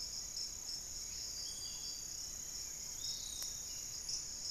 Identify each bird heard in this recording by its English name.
Hauxwell's Thrush, Piratic Flycatcher